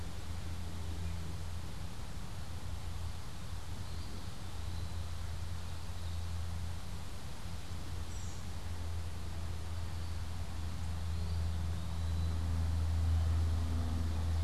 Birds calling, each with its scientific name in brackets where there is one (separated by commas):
American Robin (Turdus migratorius), Ovenbird (Seiurus aurocapilla), Eastern Wood-Pewee (Contopus virens)